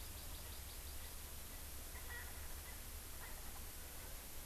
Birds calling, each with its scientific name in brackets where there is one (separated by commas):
Erckel's Francolin (Pternistis erckelii), Hawaii Amakihi (Chlorodrepanis virens)